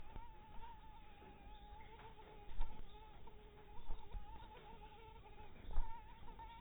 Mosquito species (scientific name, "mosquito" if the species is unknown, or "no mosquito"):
mosquito